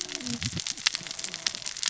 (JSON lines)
{"label": "biophony, cascading saw", "recorder": "SoundTrap 600 or HydroMoth"}